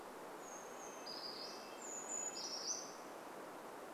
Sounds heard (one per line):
Red-breasted Nuthatch song
Brown Creeper song